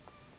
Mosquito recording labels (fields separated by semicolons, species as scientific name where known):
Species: Anopheles gambiae s.s.; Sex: female; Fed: unfed; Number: one; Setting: insect culture